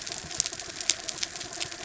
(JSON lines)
{"label": "anthrophony, mechanical", "recorder": "SoundTrap 300"}